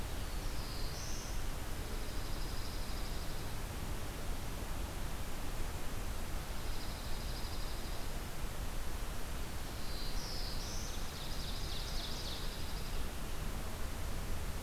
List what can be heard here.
Black-throated Blue Warbler, Dark-eyed Junco, Ovenbird